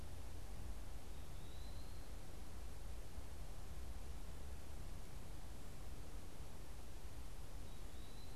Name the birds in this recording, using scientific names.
Contopus virens